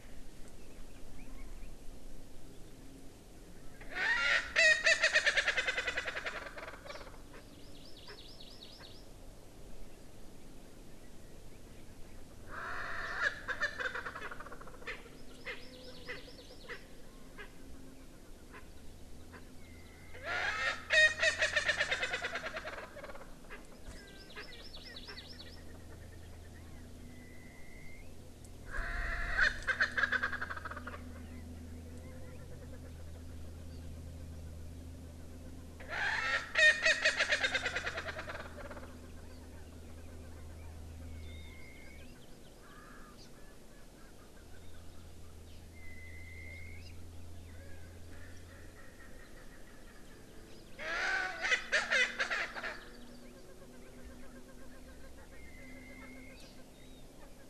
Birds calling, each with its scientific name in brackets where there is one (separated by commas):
Chinese Hwamei (Garrulax canorus), Warbling White-eye (Zosterops japonicus), Erckel's Francolin (Pternistis erckelii), Hawaii Amakihi (Chlorodrepanis virens)